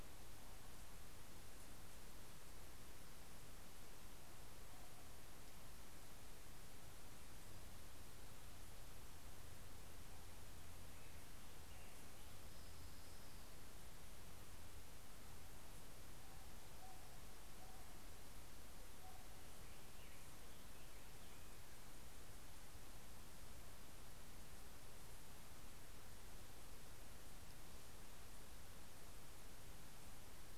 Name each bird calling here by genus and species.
Leiothlypis celata, Pheucticus melanocephalus